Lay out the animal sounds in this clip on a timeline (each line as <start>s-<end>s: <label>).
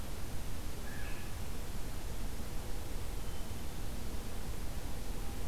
0.6s-1.6s: Blue Jay (Cyanocitta cristata)
3.0s-3.9s: Hermit Thrush (Catharus guttatus)